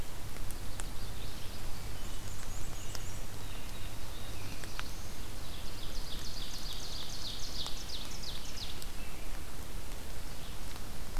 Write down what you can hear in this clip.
Black-and-white Warbler, Blue Jay, Black-throated Blue Warbler, Ovenbird